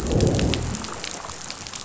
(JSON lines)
{"label": "biophony, growl", "recorder": "SoundTrap 500"}